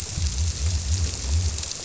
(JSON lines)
{"label": "biophony", "recorder": "SoundTrap 300"}